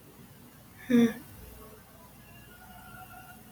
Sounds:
Sigh